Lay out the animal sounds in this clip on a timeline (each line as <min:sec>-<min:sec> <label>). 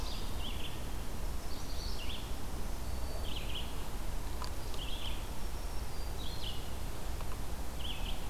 0:00.0-0:00.5 Ovenbird (Seiurus aurocapilla)
0:00.0-0:01.2 Red-eyed Vireo (Vireo olivaceus)
0:01.6-0:08.3 Red-eyed Vireo (Vireo olivaceus)
0:02.7-0:03.5 Broad-winged Hawk (Buteo platypterus)
0:05.0-0:06.6 Black-throated Green Warbler (Setophaga virens)